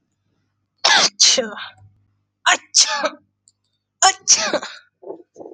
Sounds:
Sneeze